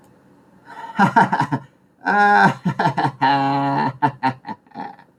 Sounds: Laughter